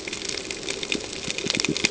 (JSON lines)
{"label": "ambient", "recorder": "HydroMoth"}